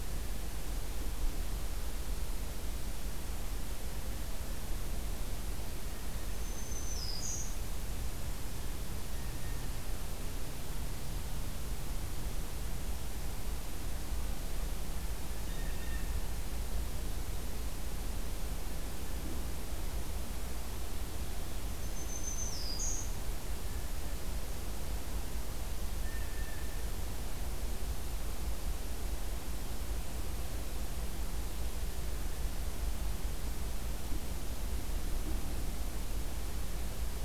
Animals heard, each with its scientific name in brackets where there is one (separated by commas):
Black-throated Green Warbler (Setophaga virens), Blue Jay (Cyanocitta cristata)